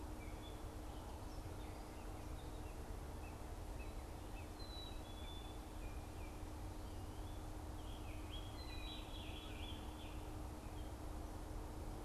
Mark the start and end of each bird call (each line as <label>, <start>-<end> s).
Black-capped Chickadee (Poecile atricapillus), 4.4-5.7 s
Scarlet Tanager (Piranga olivacea), 7.8-10.2 s